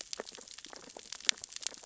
{"label": "biophony, sea urchins (Echinidae)", "recorder": "SoundTrap 600 or HydroMoth"}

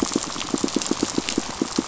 {"label": "biophony, pulse", "recorder": "SoundTrap 500"}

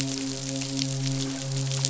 {"label": "biophony, midshipman", "recorder": "SoundTrap 500"}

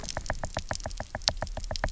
{"label": "biophony, knock", "recorder": "SoundTrap 300"}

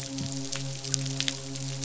{"label": "biophony, midshipman", "recorder": "SoundTrap 500"}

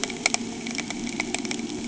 {"label": "anthrophony, boat engine", "recorder": "HydroMoth"}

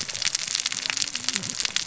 {"label": "biophony, cascading saw", "recorder": "SoundTrap 600 or HydroMoth"}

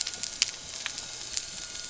{"label": "anthrophony, boat engine", "recorder": "SoundTrap 300"}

